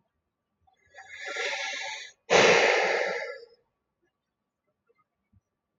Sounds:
Sigh